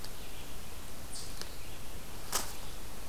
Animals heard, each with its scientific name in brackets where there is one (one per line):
Red-eyed Vireo (Vireo olivaceus)